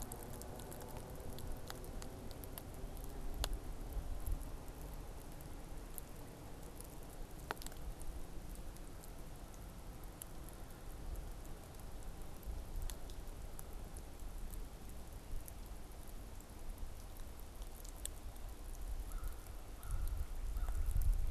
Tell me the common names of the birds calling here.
American Crow